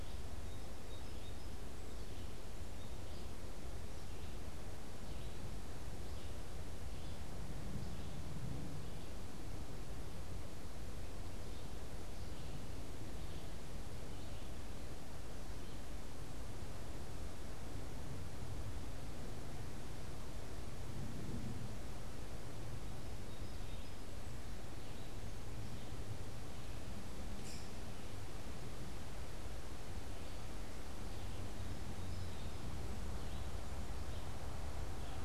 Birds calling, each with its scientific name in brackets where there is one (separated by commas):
Song Sparrow (Melospiza melodia), unidentified bird, Red-eyed Vireo (Vireo olivaceus)